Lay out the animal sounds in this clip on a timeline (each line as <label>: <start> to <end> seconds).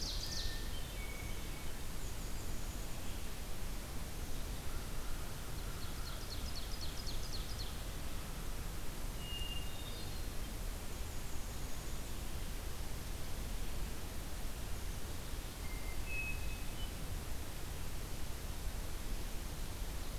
Ovenbird (Seiurus aurocapilla): 0.0 to 0.5 seconds
Hermit Thrush (Catharus guttatus): 0.2 to 1.8 seconds
Black-capped Chickadee (Poecile atricapillus): 1.8 to 3.1 seconds
Ovenbird (Seiurus aurocapilla): 5.4 to 8.0 seconds
Hermit Thrush (Catharus guttatus): 9.1 to 10.3 seconds
Black-capped Chickadee (Poecile atricapillus): 10.6 to 12.3 seconds
Hermit Thrush (Catharus guttatus): 15.5 to 17.1 seconds